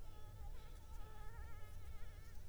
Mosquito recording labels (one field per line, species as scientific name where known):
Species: Anopheles arabiensis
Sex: female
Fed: unfed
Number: one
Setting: cup